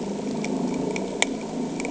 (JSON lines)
{"label": "anthrophony, boat engine", "recorder": "HydroMoth"}